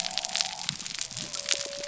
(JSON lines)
{"label": "biophony", "recorder": "SoundTrap 300"}